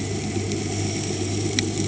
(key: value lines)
label: anthrophony, boat engine
recorder: HydroMoth